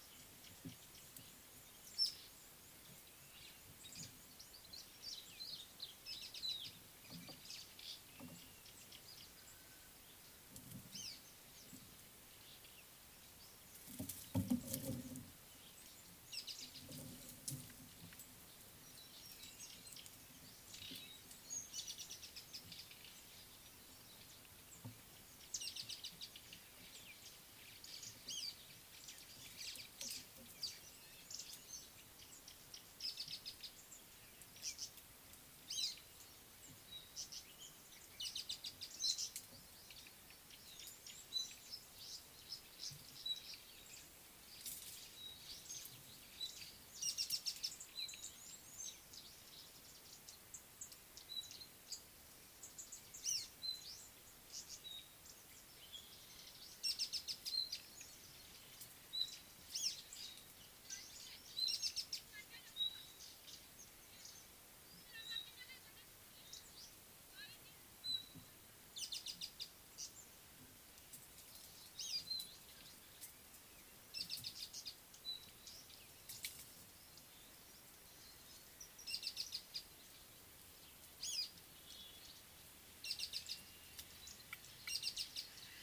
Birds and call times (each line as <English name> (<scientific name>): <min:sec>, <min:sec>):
Speckled Mousebird (Colius striatus): 0:02.1, 0:11.1, 0:16.6, 0:22.1, 0:28.4, 0:38.5, 0:47.4, 0:53.3, 0:57.2, 0:59.8, 1:02.0, 1:09.4, 1:12.1, 1:14.5, 1:19.3, 1:21.4, 1:23.4
Tawny-flanked Prinia (Prinia subflava): 0:37.2, 0:54.6, 1:10.1
Red-cheeked Cordonbleu (Uraeginthus bengalus): 0:41.2, 0:48.5
Thrush Nightingale (Luscinia luscinia): 0:43.3
Purple Grenadier (Granatina ianthinogaster): 0:50.9